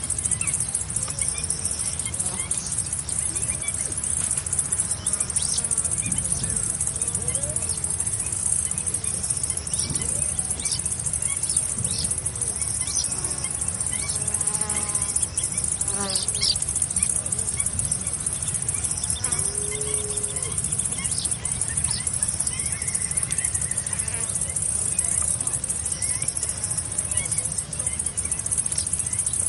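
0.0s A bird chirping with a screeching tone in nature. 2.2s
0.0s Crickets chirping in the distance. 29.4s
2.3s The abrupt sound of an insect flying. 3.1s
4.4s A faint, repeating abrupt bird chirp in nature. 29.5s
5.1s Distant abrupt sounds of insects flying. 12.4s
13.9s An insect flies off with an abrupt, gradually increasing sound. 15.2s
15.8s An insect flies off with an abrupt, gradually increasing sound. 16.8s
19.0s An insect flying off abruptly. 19.7s
24.0s An insect flying off abruptly. 24.7s

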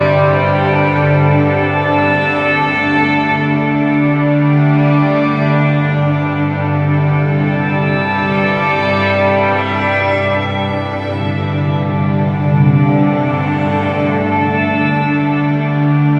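0.0s An orchestra plays stringed instruments continuously. 16.2s

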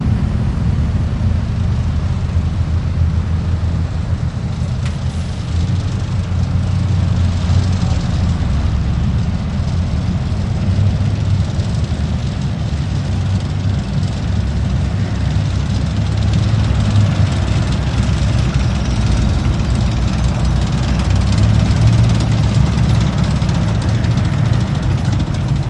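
0.0s A truck driving sound heard from inside the truck's trunk. 25.7s

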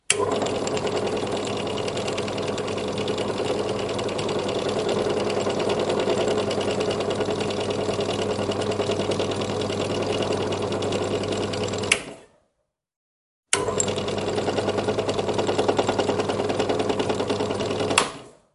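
0.0s An electric button switches on a machine. 0.3s
0.3s A drilling machine rotating idly. 11.8s
11.8s An electric button switches off a machine. 12.2s
13.5s An electric button switches on a machine. 13.7s
13.8s A drilling machine rotating idly. 17.9s
17.9s An electric button switches off a machine. 18.3s

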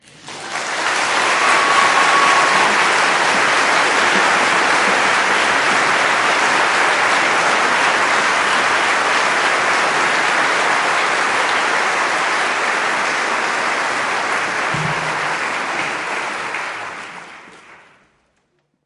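0.0s An audience claps rhythmically and steadily. 18.8s
0.0s Applause starts at a moderate pace, remains steady, and then gradually fades. 18.8s
0.0s Claps are synchronized, producing a consistent and lively sound. 18.8s

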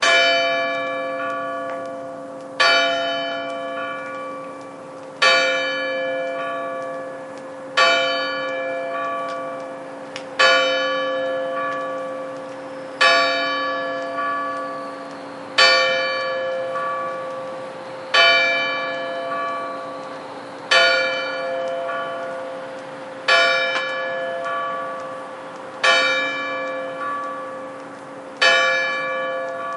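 0.0s A large bell rings rhythmically in the distance. 29.8s

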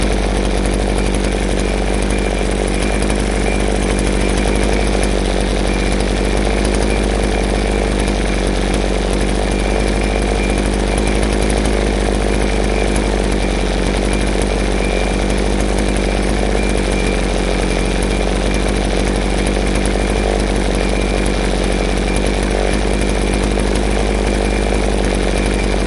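0.0s A deep, growling hum from a chainsaw. 25.9s
0.9s A faint, continuous high-frequency beep. 25.9s

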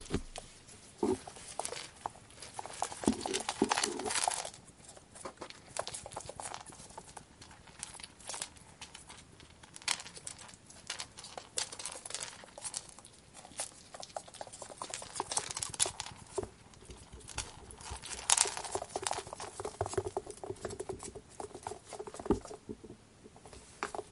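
0.0s The sound of a small animal scurrying indoors. 24.1s
0.9s Scratching sound dragged across a wooden surface. 1.2s
1.5s Sharp cracking sound. 4.6s
5.7s Sharp cracking sound. 6.6s
9.8s Cracking sound. 12.9s
13.6s Sharp cracking sound. 16.6s
17.2s Cracking sound. 23.0s

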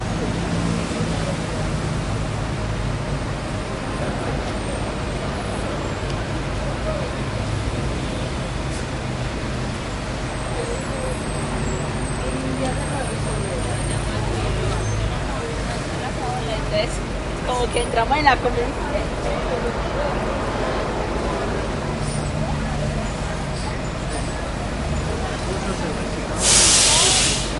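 0.0s The engine of a stationary vehicle runs continuously. 26.2s
4.2s People chatting quietly in the distance. 12.1s
12.2s People talking outdoors at a bus station. 26.4s
16.7s A woman is speaking outdoors at a bus station. 18.8s
19.9s An engine drives by. 21.7s
26.3s Pressure release from a hydraulic system as an urban bus opens its doors. 27.6s

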